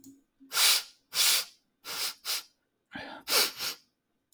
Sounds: Sniff